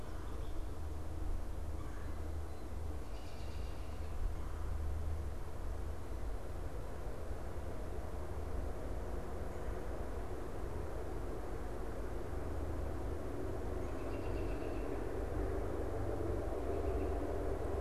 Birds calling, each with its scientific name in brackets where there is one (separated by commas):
American Robin (Turdus migratorius), Red-bellied Woodpecker (Melanerpes carolinus)